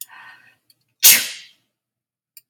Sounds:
Sneeze